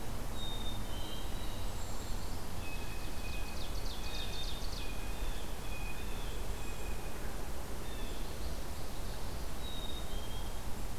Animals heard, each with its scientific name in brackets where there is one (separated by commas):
Ovenbird (Seiurus aurocapilla), Black-capped Chickadee (Poecile atricapillus), Blue Jay (Cyanocitta cristata), American Goldfinch (Spinus tristis)